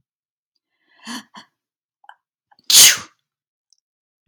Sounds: Sneeze